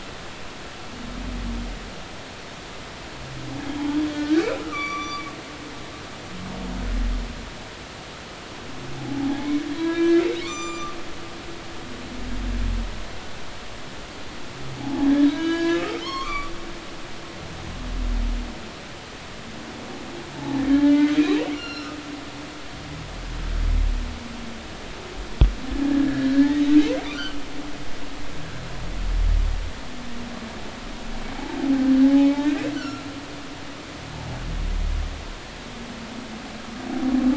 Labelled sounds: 4.1	5.3	humpback whale, 1.1 to 8.0 kHz
9.0	11.0	humpback whale, 0.80 to 7.4 kHz
14.8	16.5	humpback whale, 0.80 to 5.4 kHz
20.3	21.2	humpback whale, 0.80 to 1.8 kHz
21.5	22.0	humpback whale, 1.2 to 5.8 kHz
25.8	27.4	humpback whale, 1.6 to 5.0 kHz
32.0	32.3	humpback whale, 0.80 to 0.90 kHz
32.8	33.1	humpback whale, 1.3 to 1.6 kHz

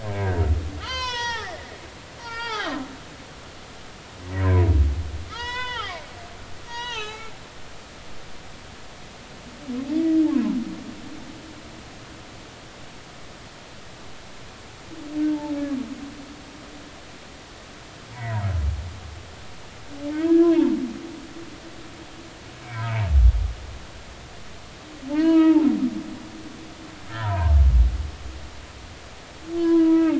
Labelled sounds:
0.0	0.4	humpback whale, 1.5 to 1.7 kHz
0.8	1.6	humpback whale, 0.80 to 6.4 kHz
2.2	2.7	humpback whale, 0.80 to 5.7 kHz
5.2	6.0	humpback whale, 0.80 to 5.6 kHz
6.7	7.3	humpback whale, 0.80 to 6.4 kHz
15.3	15.5	humpback whale, 0.83 to 0.96 kHz
20.1	20.8	humpback whale, 0.83 to 1.7 kHz
25.1	25.7	humpback whale, 0.80 to 3.3 kHz
27.1	27.6	humpback whale, 0.86 to 2.0 kHz
29.6	30.1	humpback whale, 0.83 to 2.3 kHz

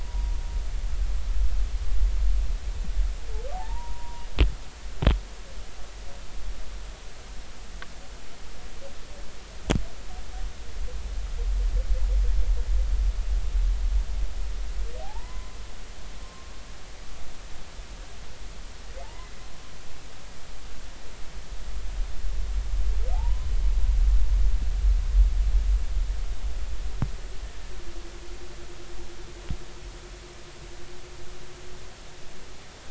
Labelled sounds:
0.0	0.4	humpback whale, 0.93 to 0.99 kHz
3.5	4.3	humpback whale, 0.80 to 1.1 kHz
15.0	16.5	humpback whale, 0.80 to 1.2 kHz
19.0	19.3	humpback whale, 0.80 to 1.1 kHz
23.1	23.5	humpback whale, 0.80 to 1.1 kHz

